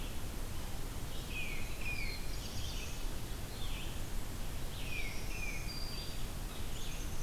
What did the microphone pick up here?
Red-eyed Vireo, Tufted Titmouse, Black-throated Blue Warbler, Black-throated Green Warbler, Black-capped Chickadee